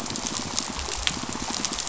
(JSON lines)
{"label": "biophony, pulse", "recorder": "SoundTrap 500"}